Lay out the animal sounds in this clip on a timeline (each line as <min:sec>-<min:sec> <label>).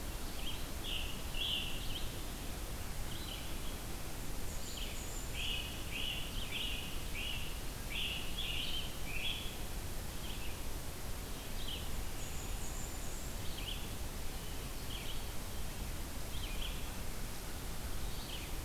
0:00.0-0:02.2 Scarlet Tanager (Piranga olivacea)
0:01.9-0:05.1 Red-eyed Vireo (Vireo olivaceus)
0:04.0-0:06.1 Black-and-white Warbler (Mniotilta varia)
0:05.2-0:08.3 Great Crested Flycatcher (Myiarchus crinitus)
0:07.8-0:09.8 Scarlet Tanager (Piranga olivacea)
0:10.1-0:18.6 Red-eyed Vireo (Vireo olivaceus)
0:12.0-0:13.5 Black-and-white Warbler (Mniotilta varia)